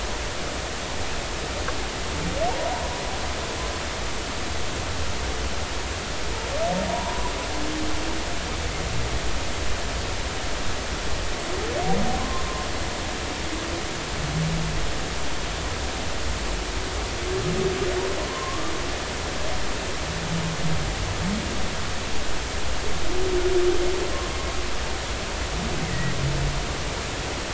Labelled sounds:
6.9	7.3	humpback whale, 0.90 to 1.1 kHz
12.2	12.4	humpback whale, 0.96 to 1.2 kHz
18.2	18.7	humpback whale, 0.93 to 1.2 kHz

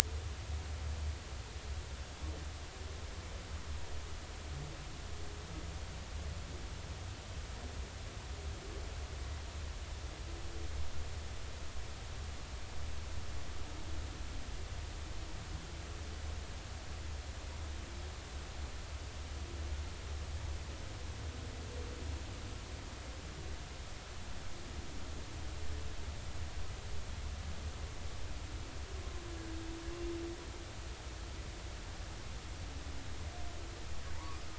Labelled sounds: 34.1	34.4	humpback whale, 0.86 to 1.3 kHz

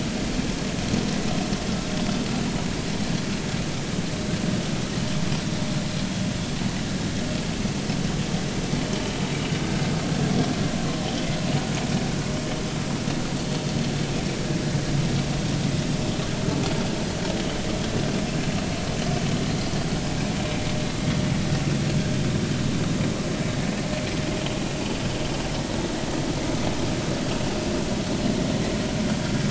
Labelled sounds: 28.1	28.4	vessel noise, 4.1 to 4.2 kHz

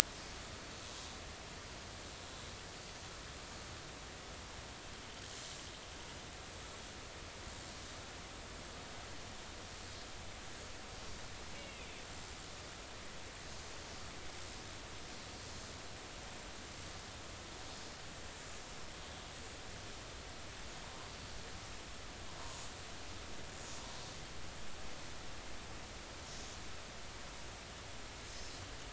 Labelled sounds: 11.5	11.9	Risso's dolphin, 2.0 to 2.9 kHz

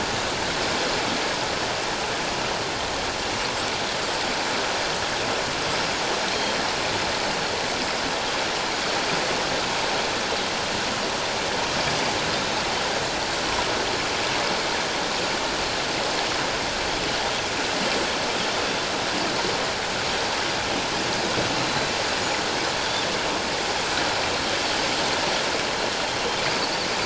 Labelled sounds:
22.2	22.5	Pacific white-sided dolphin, 6.7 to 7.0 kHz

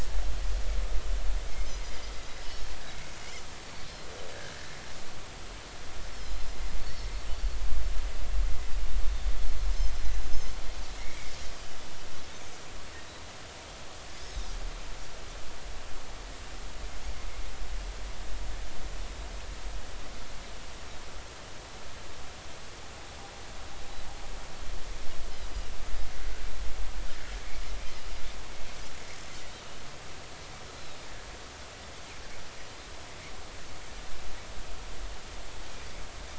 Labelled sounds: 2.9	3.1	Pacific white-sided dolphin, 2.1 to 2.3 kHz
6.1	6.4	Pacific white-sided dolphin, 5.0 to 5.5 kHz
6.8	7.1	Pacific white-sided dolphin, 4.1 to 4.6 kHz
11.0	11.3	Pacific white-sided dolphin, 2.0 to 2.4 kHz
30.7	31.0	Pacific white-sided dolphin, 3.7 to 4.2 kHz

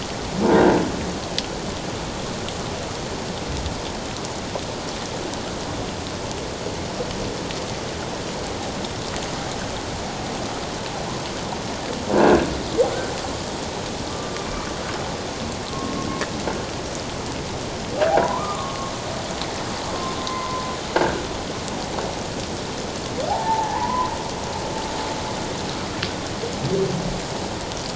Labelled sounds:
0.4	0.7	croaking sound likely from a nearby submerged object, 1.5 to 1.8 kHz
12.1	12.5	croaking sound likely from a nearby submerged object, 1.4 to 1.7 kHz
14.1	14.3	humpback whale, 1.1 to 1.2 kHz
15.7	16.1	humpback whale, 1.0 to 1.1 kHz
18.1	18.8	humpback whale, 0.78 to 1.3 kHz
20.2	21.2	humpback whale, 0.97 to 1.7 kHz
23.3	24.1	humpback whale, 0.78 to 2.0 kHz

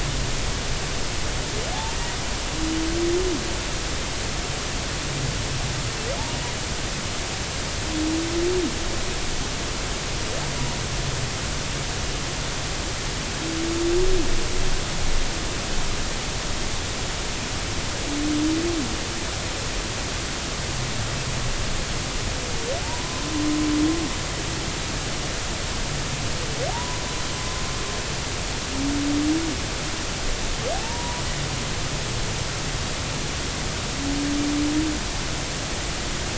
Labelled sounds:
1.7	2.0	humpback whale, 0.80 to 0.96 kHz
22.8	23.3	humpback whale, 0.83 to 1.1 kHz
26.7	27.0	humpback whale, 0.80 to 1.1 kHz
30.7	31.2	humpback whale, 0.80 to 1.0 kHz

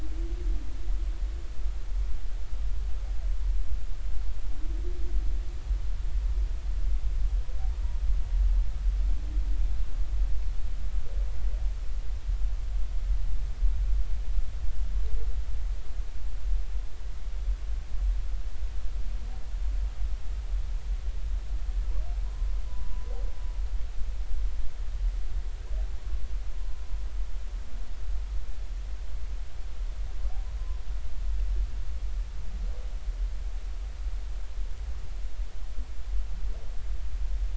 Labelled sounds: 22.7	23.1	humpback whale, 0.96 to 1.1 kHz

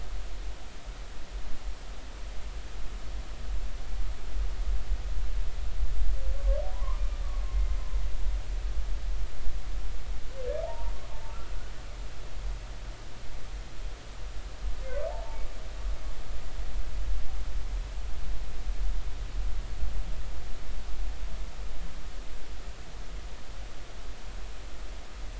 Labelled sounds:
6.7	7.8	humpback whale, 0.93 to 2.1 kHz
10.6	11.5	humpback whale, 0.80 to 1.5 kHz
15.1	15.4	humpback whale, 0.80 to 0.96 kHz

